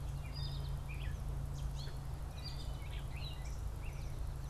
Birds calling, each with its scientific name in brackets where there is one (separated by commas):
Gray Catbird (Dumetella carolinensis)